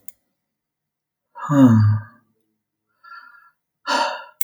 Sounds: Sigh